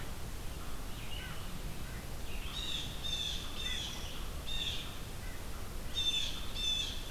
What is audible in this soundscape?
American Crow, Red-eyed Vireo, Blue Jay